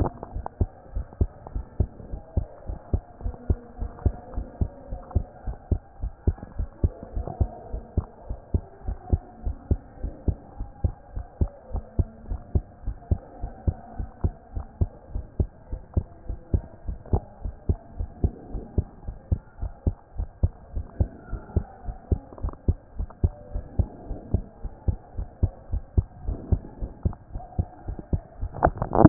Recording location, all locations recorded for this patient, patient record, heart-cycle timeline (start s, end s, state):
pulmonary valve (PV)
aortic valve (AV)+pulmonary valve (PV)+tricuspid valve (TV)+mitral valve (MV)
#Age: Child
#Sex: Female
#Height: 120.0 cm
#Weight: 20.0 kg
#Pregnancy status: False
#Murmur: Absent
#Murmur locations: nan
#Most audible location: nan
#Systolic murmur timing: nan
#Systolic murmur shape: nan
#Systolic murmur grading: nan
#Systolic murmur pitch: nan
#Systolic murmur quality: nan
#Diastolic murmur timing: nan
#Diastolic murmur shape: nan
#Diastolic murmur grading: nan
#Diastolic murmur pitch: nan
#Diastolic murmur quality: nan
#Outcome: Abnormal
#Campaign: 2014 screening campaign
0.00	0.87	unannotated
0.87	0.94	diastole
0.94	1.06	S1
1.06	1.20	systole
1.20	1.30	S2
1.30	1.54	diastole
1.54	1.66	S1
1.66	1.78	systole
1.78	1.90	S2
1.90	2.12	diastole
2.12	2.22	S1
2.22	2.36	systole
2.36	2.46	S2
2.46	2.68	diastole
2.68	2.78	S1
2.78	2.92	systole
2.92	3.02	S2
3.02	3.24	diastole
3.24	3.34	S1
3.34	3.48	systole
3.48	3.58	S2
3.58	3.80	diastole
3.80	3.90	S1
3.90	4.04	systole
4.04	4.14	S2
4.14	4.36	diastole
4.36	4.46	S1
4.46	4.60	systole
4.60	4.70	S2
4.70	4.90	diastole
4.90	5.02	S1
5.02	5.14	systole
5.14	5.26	S2
5.26	5.46	diastole
5.46	5.56	S1
5.56	5.70	systole
5.70	5.80	S2
5.80	6.02	diastole
6.02	6.12	S1
6.12	6.26	systole
6.26	6.36	S2
6.36	6.58	diastole
6.58	6.68	S1
6.68	6.82	systole
6.82	6.92	S2
6.92	7.14	diastole
7.14	7.26	S1
7.26	7.40	systole
7.40	7.50	S2
7.50	7.72	diastole
7.72	7.82	S1
7.82	7.96	systole
7.96	8.06	S2
8.06	8.28	diastole
8.28	8.38	S1
8.38	8.52	systole
8.52	8.62	S2
8.62	8.86	diastole
8.86	8.98	S1
8.98	9.10	systole
9.10	9.20	S2
9.20	9.44	diastole
9.44	9.56	S1
9.56	9.70	systole
9.70	9.80	S2
9.80	10.02	diastole
10.02	10.14	S1
10.14	10.26	systole
10.26	10.38	S2
10.38	10.58	diastole
10.58	10.68	S1
10.68	10.82	systole
10.82	10.94	S2
10.94	11.16	diastole
11.16	11.26	S1
11.26	11.40	systole
11.40	11.50	S2
11.50	11.72	diastole
11.72	11.84	S1
11.84	11.98	systole
11.98	12.08	S2
12.08	12.28	diastole
12.28	12.40	S1
12.40	12.54	systole
12.54	12.64	S2
12.64	12.86	diastole
12.86	12.96	S1
12.96	13.10	systole
13.10	13.20	S2
13.20	13.42	diastole
13.42	13.52	S1
13.52	13.66	systole
13.66	13.76	S2
13.76	13.98	diastole
13.98	14.08	S1
14.08	14.22	systole
14.22	14.34	S2
14.34	14.54	diastole
14.54	14.66	S1
14.66	14.80	systole
14.80	14.90	S2
14.90	15.14	diastole
15.14	15.24	S1
15.24	15.38	systole
15.38	15.50	S2
15.50	15.72	diastole
15.72	15.82	S1
15.82	15.96	systole
15.96	16.06	S2
16.06	16.28	diastole
16.28	16.38	S1
16.38	16.52	systole
16.52	16.62	S2
16.62	16.88	diastole
16.88	16.98	S1
16.98	17.12	systole
17.12	17.22	S2
17.22	17.44	diastole
17.44	17.54	S1
17.54	17.68	systole
17.68	17.78	S2
17.78	17.98	diastole
17.98	18.08	S1
18.08	18.22	systole
18.22	18.32	S2
18.32	18.52	diastole
18.52	18.64	S1
18.64	18.76	systole
18.76	18.86	S2
18.86	19.06	diastole
19.06	19.16	S1
19.16	19.30	systole
19.30	19.40	S2
19.40	19.60	diastole
19.60	19.72	S1
19.72	19.86	systole
19.86	19.96	S2
19.96	20.18	diastole
20.18	20.28	S1
20.28	20.42	systole
20.42	20.52	S2
20.52	20.74	diastole
20.74	20.86	S1
20.86	20.98	systole
20.98	21.10	S2
21.10	21.30	diastole
21.30	21.42	S1
21.42	21.54	systole
21.54	21.66	S2
21.66	21.86	diastole
21.86	21.96	S1
21.96	22.10	systole
22.10	22.20	S2
22.20	22.42	diastole
22.42	22.54	S1
22.54	22.66	systole
22.66	22.78	S2
22.78	22.98	diastole
22.98	23.08	S1
23.08	23.22	systole
23.22	23.32	S2
23.32	23.54	diastole
23.54	23.64	S1
23.64	23.78	systole
23.78	23.88	S2
23.88	24.10	diastole
24.10	24.20	S1
24.20	24.32	systole
24.32	24.44	S2
24.44	24.64	diastole
24.64	24.72	S1
24.72	24.86	systole
24.86	24.96	S2
24.96	25.18	diastole
25.18	29.09	unannotated